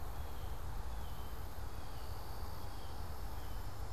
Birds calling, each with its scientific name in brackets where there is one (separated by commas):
Blue Jay (Cyanocitta cristata)